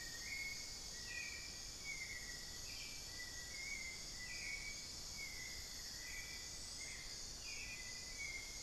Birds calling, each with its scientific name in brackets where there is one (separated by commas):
Little Tinamou (Crypturellus soui), Hauxwell's Thrush (Turdus hauxwelli), unidentified bird